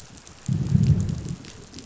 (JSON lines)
{"label": "biophony, growl", "recorder": "SoundTrap 500"}